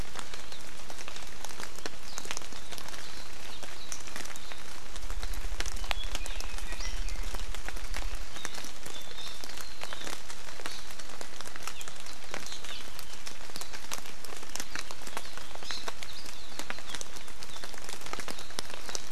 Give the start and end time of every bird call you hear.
5.8s-7.2s: Apapane (Himatione sanguinea)
11.8s-11.9s: Hawaii Amakihi (Chlorodrepanis virens)
12.7s-12.9s: Hawaii Amakihi (Chlorodrepanis virens)
15.7s-15.9s: Hawaii Amakihi (Chlorodrepanis virens)

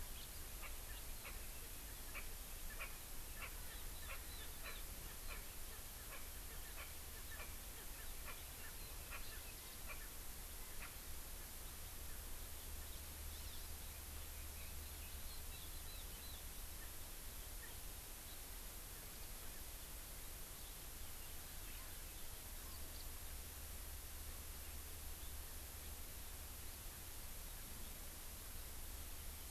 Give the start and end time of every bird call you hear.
0.6s-0.8s: Erckel's Francolin (Pternistis erckelii)
1.2s-1.4s: Erckel's Francolin (Pternistis erckelii)
2.1s-2.3s: Erckel's Francolin (Pternistis erckelii)
2.8s-2.9s: Erckel's Francolin (Pternistis erckelii)
3.4s-3.6s: Erckel's Francolin (Pternistis erckelii)
4.1s-4.2s: Erckel's Francolin (Pternistis erckelii)
4.7s-4.8s: Erckel's Francolin (Pternistis erckelii)
5.3s-5.5s: Erckel's Francolin (Pternistis erckelii)
6.1s-6.3s: Erckel's Francolin (Pternistis erckelii)
6.8s-6.9s: Erckel's Francolin (Pternistis erckelii)
7.4s-7.6s: Erckel's Francolin (Pternistis erckelii)
8.3s-8.4s: Erckel's Francolin (Pternistis erckelii)
9.1s-9.2s: Erckel's Francolin (Pternistis erckelii)
9.9s-10.0s: Erckel's Francolin (Pternistis erckelii)
10.8s-10.9s: Erckel's Francolin (Pternistis erckelii)

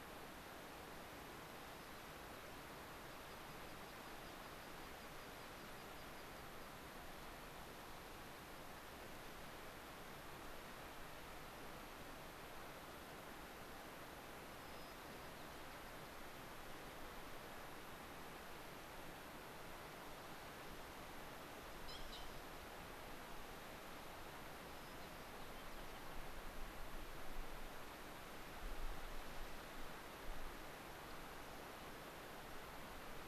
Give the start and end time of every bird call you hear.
1.5s-2.0s: White-crowned Sparrow (Zonotrichia leucophrys)
2.8s-6.6s: American Pipit (Anthus rubescens)
14.5s-16.1s: White-crowned Sparrow (Zonotrichia leucophrys)
24.6s-26.1s: White-crowned Sparrow (Zonotrichia leucophrys)

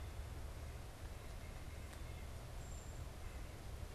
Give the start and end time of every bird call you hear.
1.0s-3.9s: White-breasted Nuthatch (Sitta carolinensis)
2.5s-3.1s: unidentified bird

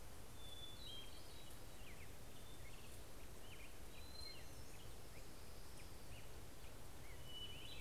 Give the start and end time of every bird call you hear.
0.0s-7.8s: Black-headed Grosbeak (Pheucticus melanocephalus)
0.3s-2.1s: Hermit Thrush (Catharus guttatus)
3.5s-5.0s: Hermit Thrush (Catharus guttatus)
4.5s-6.4s: Orange-crowned Warbler (Leiothlypis celata)
7.1s-7.8s: Hermit Thrush (Catharus guttatus)

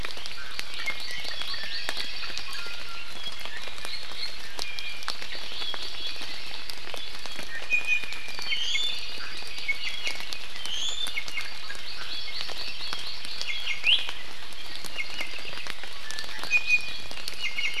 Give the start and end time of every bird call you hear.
0.0s-2.3s: Hawaii Amakihi (Chlorodrepanis virens)
0.7s-2.1s: Iiwi (Drepanis coccinea)
2.4s-3.1s: Iiwi (Drepanis coccinea)
4.4s-5.1s: Iiwi (Drepanis coccinea)
4.8s-6.7s: Hawaii Amakihi (Chlorodrepanis virens)
7.5s-9.0s: Iiwi (Drepanis coccinea)
8.9s-10.3s: Hawaii Amakihi (Chlorodrepanis virens)
9.6s-10.3s: Iiwi (Drepanis coccinea)
10.6s-11.5s: Iiwi (Drepanis coccinea)
11.6s-13.4s: Hawaii Amakihi (Chlorodrepanis virens)
13.3s-14.1s: Iiwi (Drepanis coccinea)
14.6s-15.7s: Apapane (Himatione sanguinea)
14.9s-15.3s: Iiwi (Drepanis coccinea)
16.0s-17.8s: Iiwi (Drepanis coccinea)

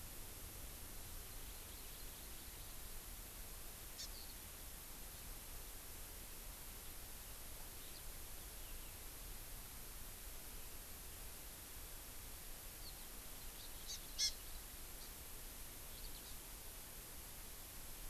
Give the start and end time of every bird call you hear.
1.1s-2.6s: Hawaii Amakihi (Chlorodrepanis virens)
4.0s-4.1s: Hawaii Amakihi (Chlorodrepanis virens)
4.1s-4.4s: Eurasian Skylark (Alauda arvensis)
7.8s-8.0s: Eurasian Skylark (Alauda arvensis)
12.8s-13.1s: Eurasian Skylark (Alauda arvensis)
13.6s-14.3s: Hawaii Amakihi (Chlorodrepanis virens)
15.0s-15.1s: Hawaii Amakihi (Chlorodrepanis virens)
15.9s-16.2s: Eurasian Skylark (Alauda arvensis)

